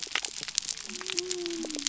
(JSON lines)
{"label": "biophony", "recorder": "SoundTrap 300"}